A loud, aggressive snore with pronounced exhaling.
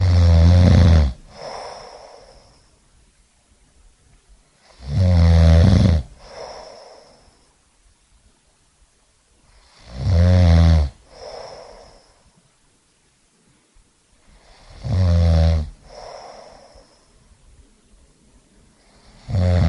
0.0 2.1, 4.7 6.9, 9.8 12.0, 14.8 16.5, 19.2 19.7

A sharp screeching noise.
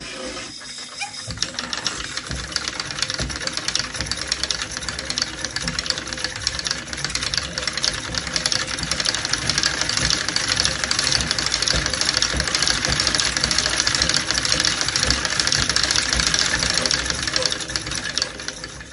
0.8 1.6

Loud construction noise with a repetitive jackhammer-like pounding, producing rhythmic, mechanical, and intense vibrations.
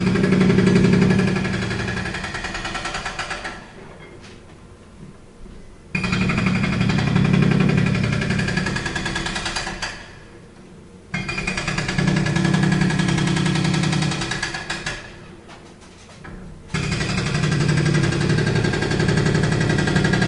0.0 3.9, 5.9 10.1, 11.1 15.3, 16.9 20.3

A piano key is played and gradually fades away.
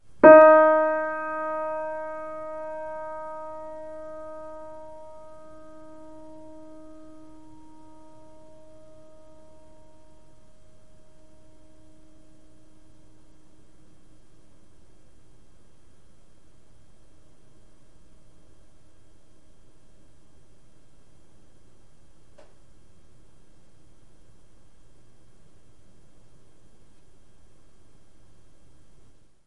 0.2 5.2

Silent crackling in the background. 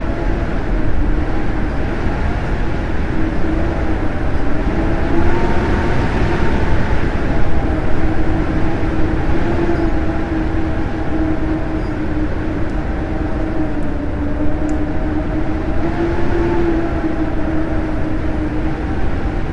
13.7 15.5

